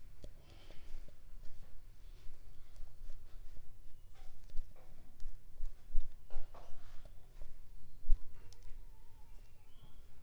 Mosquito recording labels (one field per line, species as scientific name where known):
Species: Culex pipiens complex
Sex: female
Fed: unfed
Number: one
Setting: cup